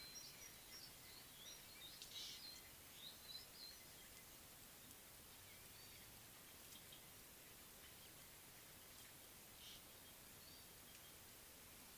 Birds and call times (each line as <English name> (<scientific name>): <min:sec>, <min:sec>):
Ring-necked Dove (Streptopelia capicola): 0:02.2